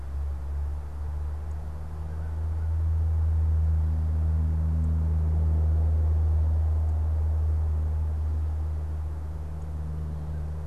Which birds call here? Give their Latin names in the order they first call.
Corvus brachyrhynchos